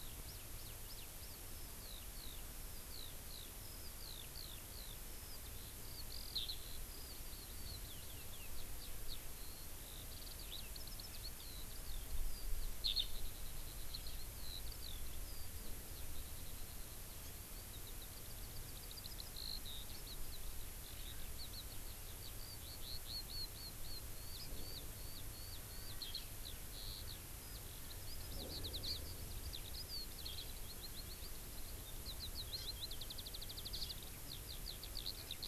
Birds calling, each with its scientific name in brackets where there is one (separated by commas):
Eurasian Skylark (Alauda arvensis), Hawaii Amakihi (Chlorodrepanis virens)